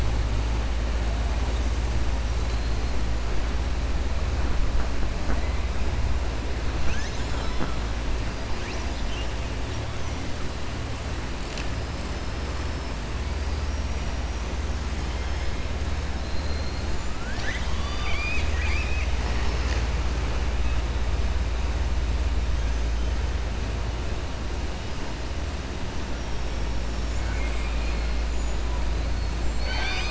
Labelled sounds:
13.6	14.1	killer whale, southern resident, 4.7 to 5.8 kHz
16.1	16.9	killer whale, southern resident, 4.0 to 4.3 kHz
17.1	19.1	killer whale, southern resident, 1.0 to 7.2 kHz

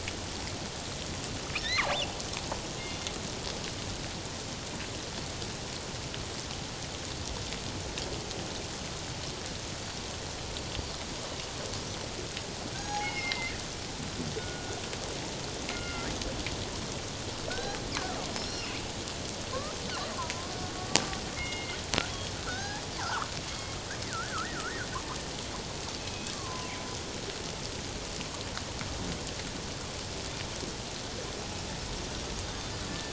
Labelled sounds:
12.7	13.5	killer whale, northern resident, G clan, 0.78 to 6.7 kHz
14.4	14.8	killer whale, northern resident, G clan, 1.4 to 1.5 kHz
15.7	16.1	killer whale, northern resident, G clan, 1.3 to 2.2 kHz
17.5	17.8	killer whale, northern resident, G clan, 1.4 to 1.7 kHz
18.4	18.8	killer whale, northern resident, G clan, 2.1 to 5.8 kHz
20.2	20.5	killer whale, northern resident, G clan, 0.91 to 1.1 kHz
21.4	21.8	killer whale, northern resident, G clan, 2.0 to 2.9 kHz
22.5	23.3	killer whale, northern resident, G clan, 0.78 to 1.8 kHz
24.1	24.9	killer whale, northern resident, G clan, 1.1 to 2.0 kHz
26.0	26.8	killer whale, northern resident, G clan, 0.97 to 2.6 kHz
32.9	33.1	killer whale, northern resident, G clan, 1.7 to 1.8 kHz

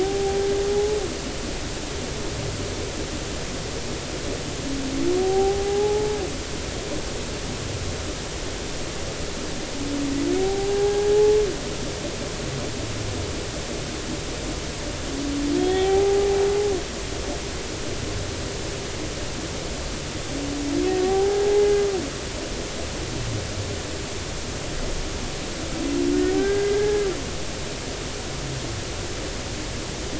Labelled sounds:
0.0	1.0	humpback whale, 0.80 to 0.90 kHz
5.2	6.2	humpback whale, 0.80 to 0.96 kHz
10.4	11.4	humpback whale, 0.80 to 0.90 kHz
15.6	16.4	humpback whale, 0.80 to 3.5 kHz
21.0	21.7	humpback whale, 0.80 to 0.93 kHz
26.3	27.0	humpback whale, 1.5 to 2.1 kHz

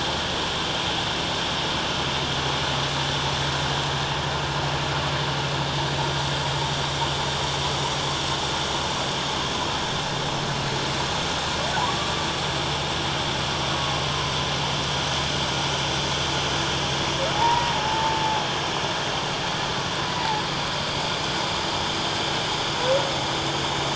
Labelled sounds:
17.3	18.2	humpback whale, 0.78 to 2.0 kHz
20.1	20.4	humpback whale, 0.81 to 2.0 kHz

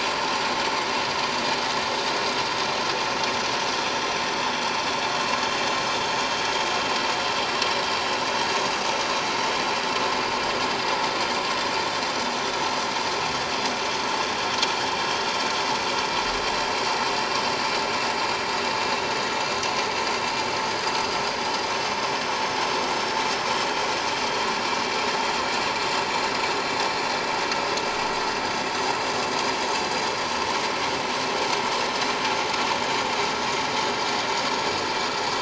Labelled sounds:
19.8	20.1	vessel noise, 6.3 to 6.4 kHz
22.0	22.3	vessel noise, 5.0 to 5.3 kHz
23.0	23.3	vessel noise, 5.5 to 5.7 kHz
32.8	33.1	vessel noise, 6.7 to 6.9 kHz
34.4	34.7	vessel noise, 5.2 to 5.4 kHz

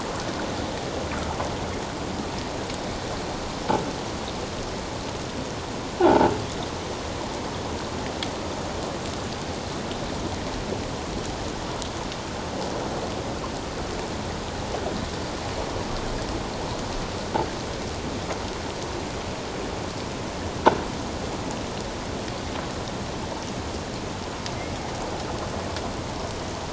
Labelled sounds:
6.0	6.3	croaking sound likely from a nearby submerged object, 0.78 to 1.1 kHz

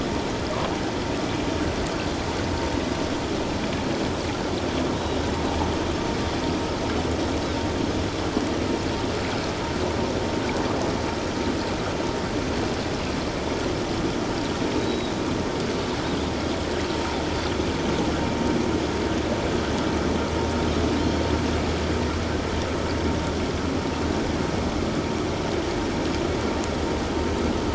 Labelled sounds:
14.8	15.1	Pacific white-sided dolphin, 3.7 to 4.0 kHz
21.0	21.3	Pacific white-sided dolphin, 4.1 to 4.4 kHz

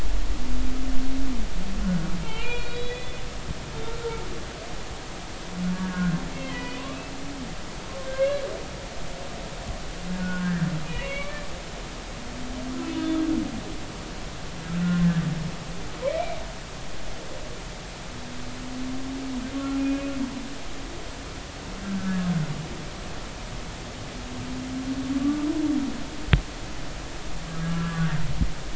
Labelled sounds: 1.8	3.3	humpback whale, 1.3 to 4.0 kHz
5.7	6.8	humpback whale, 0.93 to 3.3 kHz
8.1	8.4	humpback whale, 1.5 to 1.8 kHz
10.2	11.5	humpback whale, 0.93 to 2.9 kHz
12.9	13.2	humpback whale, 3.5 to 3.6 kHz
15.7	16.4	humpback whale, 1.3 to 2.5 kHz
19.8	20.1	humpback whale, 2.4 to 2.6 kHz
21.8	22.3	humpback whale, 1.2 to 1.8 kHz
25.2	25.5	humpback whale, 1.1 to 1.2 kHz
27.6	28.1	humpback whale, 1.1 to 1.7 kHz

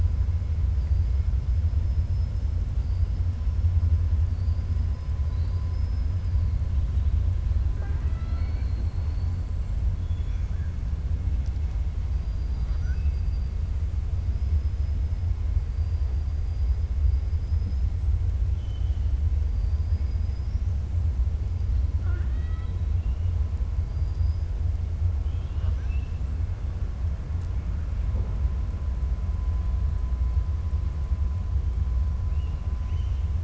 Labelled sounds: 5.2	6.4	killer whale, 3.9 to 5.2 kHz
7.7	9.3	killer whale, 0.40 to 4.6 kHz
10.0	10.7	killer whale, 1.5 to 3.5 kHz
12.3	13.5	killer whale, 1.0 to 5.9 kHz
17.3	17.9	killer whale, 4.9 to 5.3 kHz
18.5	19.1	killer whale, 2.8 to 3.5 kHz
19.5	20.7	killer whale, 4.6 to 6.5 kHz
21.9	22.8	killer whale, 0.35 to 4.5 kHz
23.8	24.5	killer whale, 4.7 to 5.5 kHz
25.2	26.2	killer whale, 0.70 to 5.9 kHz
32.7	33.3	killer whale, 1.9 to 3.3 kHz

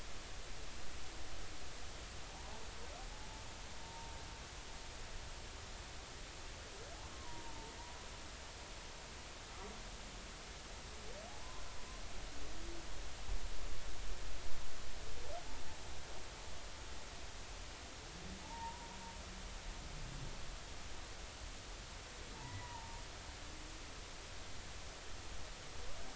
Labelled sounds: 2.3	2.5	humpback whale, 0.80 to 1.1 kHz
3.8	4.1	humpback whale, 0.90 to 0.96 kHz
7.1	7.7	humpback whale, 0.86 to 1.1 kHz
18.4	18.9	humpback whale, 0.83 to 1.0 kHz
22.3	23.0	humpback whale, 0.80 to 2.0 kHz

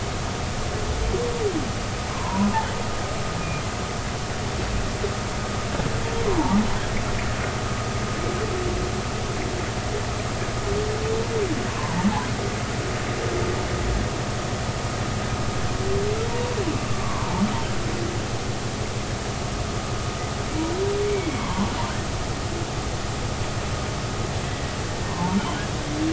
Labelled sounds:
2.1	2.5	humpback whale, 0.80 to 1.1 kHz
6.3	6.6	humpback whale, 0.80 to 1.1 kHz
11.7	12.0	humpback whale, 0.86 to 1.2 kHz
16.9	17.4	humpback whale, 0.83 to 1.2 kHz
21.0	21.7	humpback whale, 0.86 to 2.4 kHz
24.5	24.7	humpback whale, 1.9 to 2.0 kHz
25.1	25.4	humpback whale, 0.83 to 1.1 kHz

